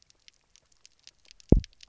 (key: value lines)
label: biophony, double pulse
recorder: SoundTrap 300